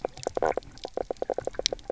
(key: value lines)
label: biophony, knock croak
recorder: SoundTrap 300